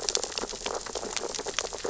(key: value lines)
label: biophony, sea urchins (Echinidae)
recorder: SoundTrap 600 or HydroMoth